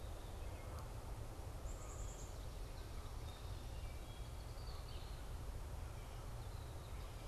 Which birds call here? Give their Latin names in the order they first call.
Poecile atricapillus, Agelaius phoeniceus